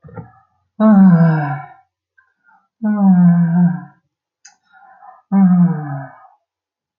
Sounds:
Sigh